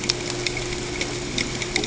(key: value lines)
label: ambient
recorder: HydroMoth